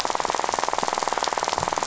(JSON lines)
{"label": "biophony, rattle", "recorder": "SoundTrap 500"}